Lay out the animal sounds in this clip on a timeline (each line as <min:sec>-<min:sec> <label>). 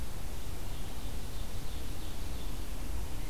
0:00.4-0:02.5 Ovenbird (Seiurus aurocapilla)